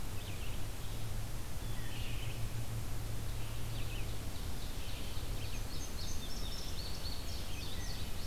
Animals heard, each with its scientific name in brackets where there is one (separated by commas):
Indigo Bunting (Passerina cyanea), Wood Thrush (Hylocichla mustelina), Red-eyed Vireo (Vireo olivaceus)